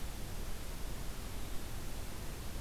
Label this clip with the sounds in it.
forest ambience